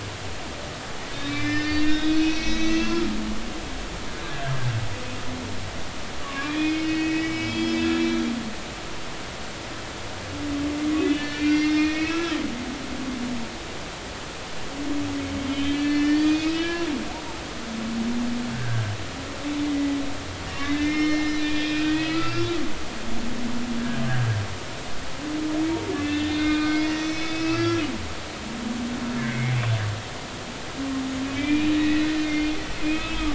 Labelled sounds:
1.1	3.1	humpback whale, 1.2 to 6.4 kHz
6.2	8.3	humpback whale, 1.1 to 5.3 kHz
10.9	12.4	humpback whale, 1.2 to 4.6 kHz
15.5	16.9	humpback whale, 1.6 to 4.6 kHz
18.5	18.8	humpback whale, 1.5 to 1.7 kHz
19.6	22.5	humpback whale, 1.2 to 5.5 kHz
26.0	27.8	humpback whale, 1.2 to 6.1 kHz
29.2	29.5	humpback whale, 2.0 to 2.3 kHz
31.3	33.3	humpback whale, 1.8 to 3.7 kHz

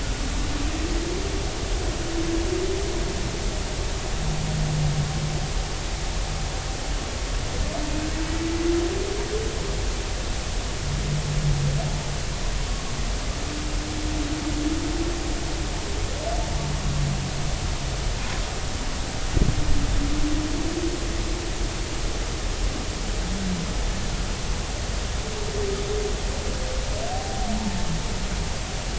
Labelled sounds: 27.1	27.5	humpback whale, 0.80 to 0.83 kHz

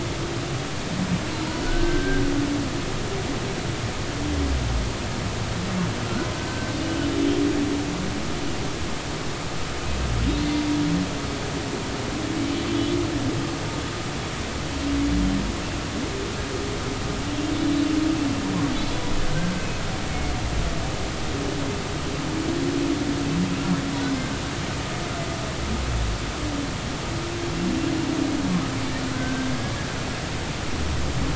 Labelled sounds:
1.6	2.2	humpback whale, 1.4 to 1.6 kHz
6.4	7.4	humpback whale, 1.5 to 3.3 kHz
12.7	13.0	humpback whale, 2.9 to 3.5 kHz
19.6	19.8	humpback whale, 2.5 to 2.6 kHz
24.2	24.4	humpback whale, 1.4 to 1.6 kHz
29.1	29.5	humpback whale, 1.5 to 1.6 kHz

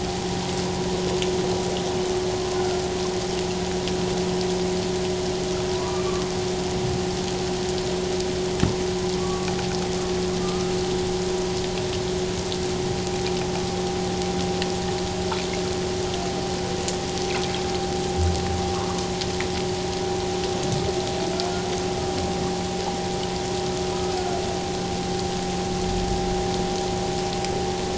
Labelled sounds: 2.5	2.8	humpback whale, 1.3 to 1.5 kHz
5.8	6.1	humpback whale, 0.94 to 2.4 kHz
9.2	9.5	humpback whale, 1.1 to 1.2 kHz
10.4	10.7	humpback whale, 1.2 to 1.4 kHz
23.9	24.1	humpback whale, 1.2 to 1.3 kHz

